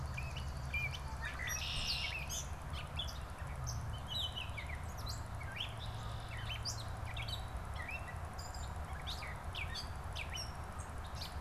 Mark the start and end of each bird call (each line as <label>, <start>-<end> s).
Swamp Sparrow (Melospiza georgiana), 0.0-2.5 s
Gray Catbird (Dumetella carolinensis), 0.0-11.4 s
Red-winged Blackbird (Agelaius phoeniceus), 1.1-2.6 s
Red-winged Blackbird (Agelaius phoeniceus), 5.5-6.6 s